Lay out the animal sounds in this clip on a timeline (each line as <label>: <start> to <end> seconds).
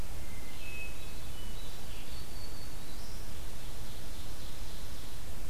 Hermit Thrush (Catharus guttatus): 0.0 to 1.9 seconds
Red-eyed Vireo (Vireo olivaceus): 1.6 to 5.5 seconds
Black-throated Green Warbler (Setophaga virens): 1.8 to 3.4 seconds
Ovenbird (Seiurus aurocapilla): 3.2 to 5.2 seconds